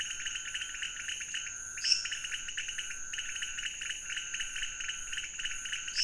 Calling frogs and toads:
Leptodactylus podicipinus, Dendropsophus minutus
Cerrado, 3:00am

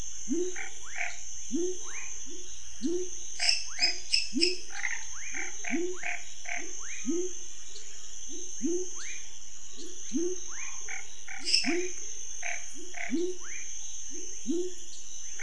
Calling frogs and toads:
Leptodactylus labyrinthicus, Boana raniceps, Leptodactylus fuscus, Dendropsophus nanus, Dendropsophus minutus
Cerrado, 7:30pm

